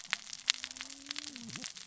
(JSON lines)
{"label": "biophony, cascading saw", "recorder": "SoundTrap 600 or HydroMoth"}